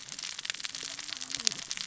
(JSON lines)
{"label": "biophony, cascading saw", "recorder": "SoundTrap 600 or HydroMoth"}